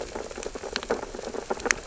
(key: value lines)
label: biophony, sea urchins (Echinidae)
recorder: SoundTrap 600 or HydroMoth